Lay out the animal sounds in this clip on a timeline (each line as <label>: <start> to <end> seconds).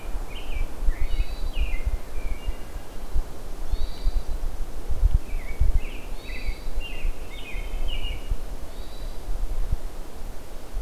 American Robin (Turdus migratorius): 0.0 to 2.3 seconds
Hermit Thrush (Catharus guttatus): 0.0 to 10.8 seconds
Wood Thrush (Hylocichla mustelina): 2.2 to 3.0 seconds
American Robin (Turdus migratorius): 5.0 to 8.7 seconds